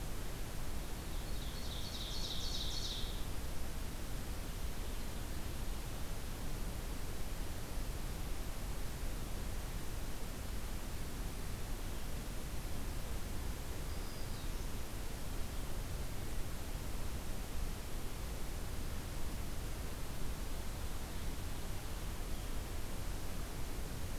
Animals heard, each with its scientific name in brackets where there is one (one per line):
Ovenbird (Seiurus aurocapilla)
Black-throated Green Warbler (Setophaga virens)